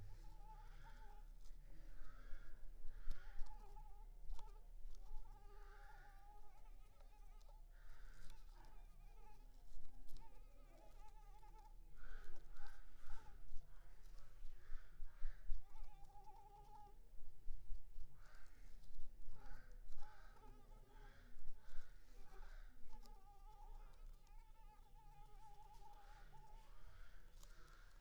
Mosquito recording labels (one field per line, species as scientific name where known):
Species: Anopheles arabiensis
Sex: female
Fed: unfed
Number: one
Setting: cup